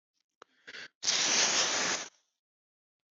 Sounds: Throat clearing